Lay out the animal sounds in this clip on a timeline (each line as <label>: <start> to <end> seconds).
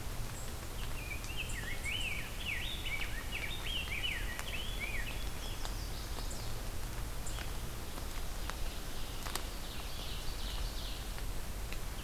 Rose-breasted Grosbeak (Pheucticus ludovicianus): 0.5 to 5.5 seconds
Chestnut-sided Warbler (Setophaga pensylvanica): 5.2 to 6.7 seconds
Ovenbird (Seiurus aurocapilla): 8.8 to 11.2 seconds